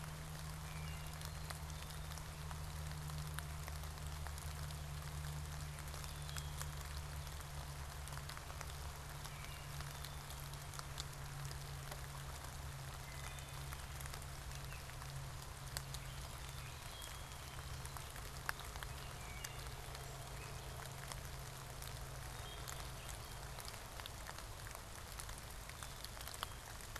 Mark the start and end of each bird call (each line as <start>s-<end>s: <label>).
0.9s-2.3s: Black-capped Chickadee (Poecile atricapillus)
5.8s-6.8s: Black-capped Chickadee (Poecile atricapillus)
9.1s-9.9s: Wood Thrush (Hylocichla mustelina)
9.7s-10.9s: Black-capped Chickadee (Poecile atricapillus)
12.7s-13.9s: Wood Thrush (Hylocichla mustelina)
14.5s-15.0s: Gray Catbird (Dumetella carolinensis)
16.7s-18.1s: Black-capped Chickadee (Poecile atricapillus)
19.0s-19.8s: Wood Thrush (Hylocichla mustelina)
20.2s-20.9s: Gray Catbird (Dumetella carolinensis)
22.1s-23.1s: Wood Thrush (Hylocichla mustelina)
25.5s-26.7s: Black-capped Chickadee (Poecile atricapillus)